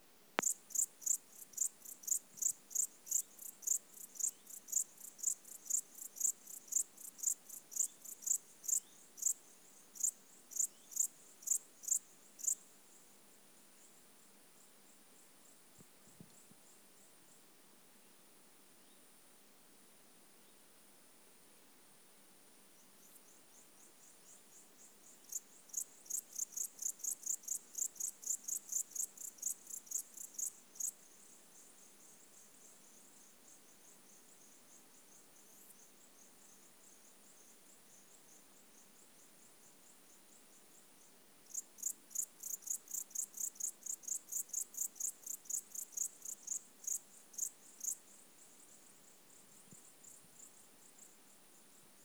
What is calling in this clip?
Pholidoptera aptera, an orthopteran